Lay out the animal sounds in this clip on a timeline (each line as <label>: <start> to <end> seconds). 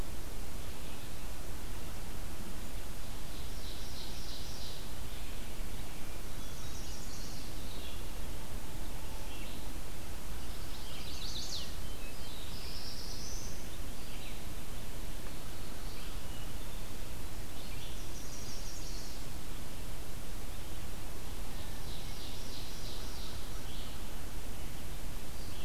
Red-eyed Vireo (Vireo olivaceus): 0.0 to 25.6 seconds
Ovenbird (Seiurus aurocapilla): 3.2 to 4.8 seconds
Chestnut-sided Warbler (Setophaga pensylvanica): 6.2 to 7.6 seconds
Chestnut-sided Warbler (Setophaga pensylvanica): 10.5 to 11.7 seconds
Black-throated Blue Warbler (Setophaga caerulescens): 11.9 to 13.6 seconds
Chestnut-sided Warbler (Setophaga pensylvanica): 17.9 to 19.4 seconds
Ovenbird (Seiurus aurocapilla): 21.5 to 23.3 seconds